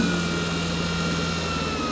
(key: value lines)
label: anthrophony, boat engine
recorder: SoundTrap 500